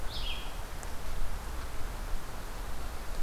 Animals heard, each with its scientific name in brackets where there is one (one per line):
Red-eyed Vireo (Vireo olivaceus)